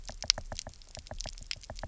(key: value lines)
label: biophony, knock
recorder: SoundTrap 300